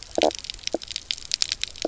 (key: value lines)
label: biophony, knock croak
recorder: SoundTrap 300